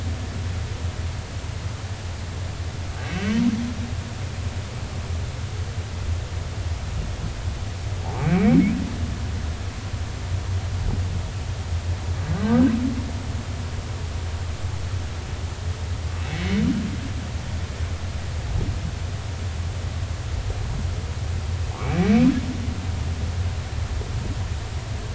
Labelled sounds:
3.1	3.3	humpback whale, 2.5 to 2.8 kHz
8.0	8.7	humpback whale, 0.80 to 2.5 kHz
12.3	12.7	humpback whale, 1.4 to 1.7 kHz
16.3	16.6	humpback whale, 1.9 to 2.3 kHz
21.8	22.3	humpback whale, 2.2 to 2.4 kHz

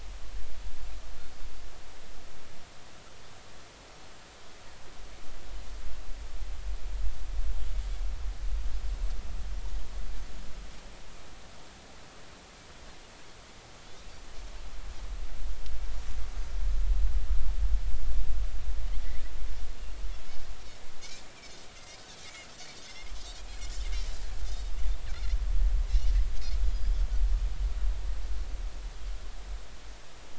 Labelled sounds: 22.8	23.1	Pacific white-sided dolphin, 3.3 to 5.4 kHz
24.4	24.7	Pacific white-sided dolphin, 3.5 to 3.8 kHz

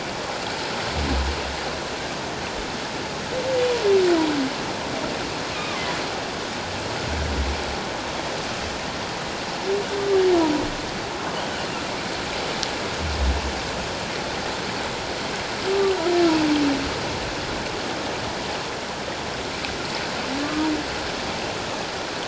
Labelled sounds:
20.4	20.7	humpback whale, 1.1 to 1.3 kHz

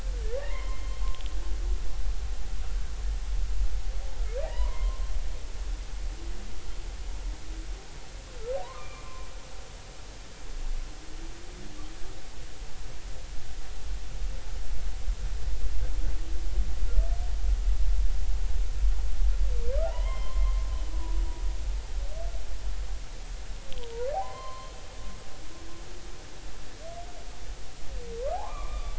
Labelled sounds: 0.4	1.0	humpback whale, 0.90 to 3.2 kHz
4.4	5.9	humpback whale, 0.80 to 2.2 kHz
8.6	9.1	humpback whale, 0.90 to 2.5 kHz
19.8	20.7	humpback whale, 0.80 to 3.2 kHz
24.1	24.7	humpback whale, 0.80 to 4.2 kHz
28.3	28.9	humpback whale, 0.80 to 3.7 kHz

